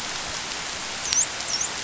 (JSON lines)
{"label": "biophony, dolphin", "recorder": "SoundTrap 500"}